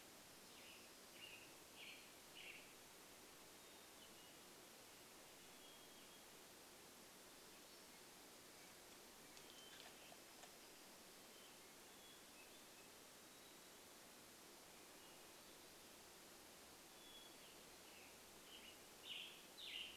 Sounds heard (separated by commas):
Hermit Thrush song, warbler song, Western Tanager song